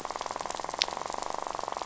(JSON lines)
{"label": "biophony, rattle", "recorder": "SoundTrap 500"}